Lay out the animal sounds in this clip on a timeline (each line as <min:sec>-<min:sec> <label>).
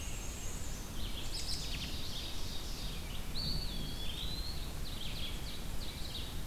0:00.0-0:01.0 Black-and-white Warbler (Mniotilta varia)
0:00.0-0:06.5 Red-eyed Vireo (Vireo olivaceus)
0:01.0-0:01.9 American Robin (Turdus migratorius)
0:01.6-0:03.0 Ovenbird (Seiurus aurocapilla)
0:03.2-0:04.8 Eastern Wood-Pewee (Contopus virens)
0:04.7-0:06.4 Ovenbird (Seiurus aurocapilla)